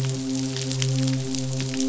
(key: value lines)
label: biophony, midshipman
recorder: SoundTrap 500